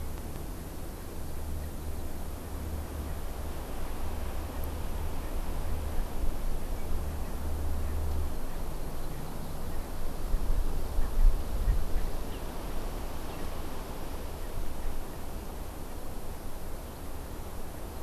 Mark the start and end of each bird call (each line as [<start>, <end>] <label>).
[11.00, 11.10] Erckel's Francolin (Pternistis erckelii)
[11.60, 12.10] Erckel's Francolin (Pternistis erckelii)